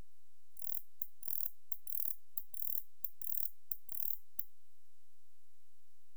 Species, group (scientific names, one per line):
Barbitistes ocskayi
Orthoptera